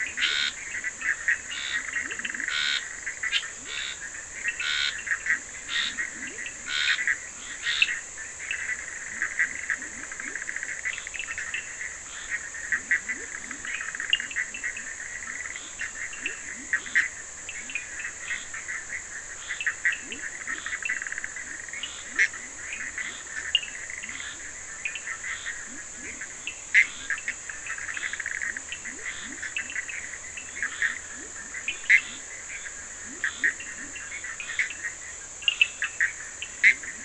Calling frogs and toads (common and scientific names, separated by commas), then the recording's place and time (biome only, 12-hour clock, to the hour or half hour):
Leptodactylus latrans, Scinax perereca, Bischoff's tree frog (Boana bischoffi), Cochran's lime tree frog (Sphaenorhynchus surdus)
Atlantic Forest, ~10pm